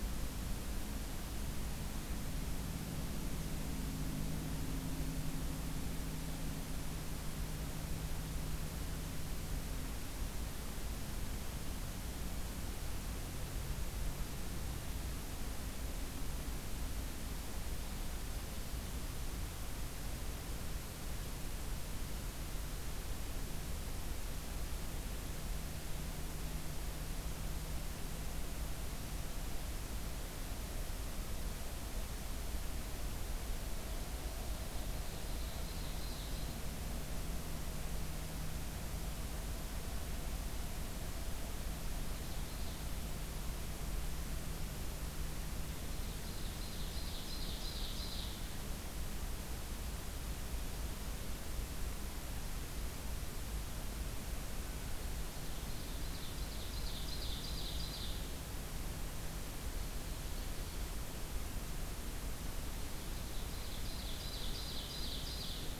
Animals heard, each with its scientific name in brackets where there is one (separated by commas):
Ovenbird (Seiurus aurocapilla)